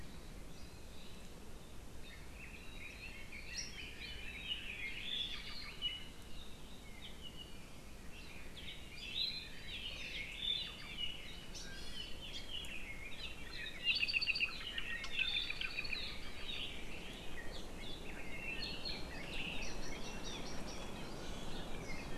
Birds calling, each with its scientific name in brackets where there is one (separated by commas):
Red-billed Leiothrix (Leiothrix lutea), Apapane (Himatione sanguinea), Iiwi (Drepanis coccinea)